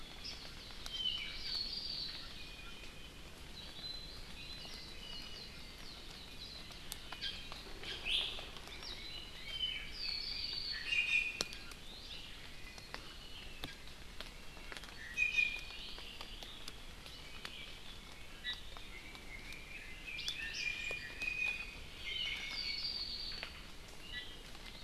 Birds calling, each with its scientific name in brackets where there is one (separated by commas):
Apapane (Himatione sanguinea), Red-billed Leiothrix (Leiothrix lutea), Iiwi (Drepanis coccinea), Hawaii Amakihi (Chlorodrepanis virens)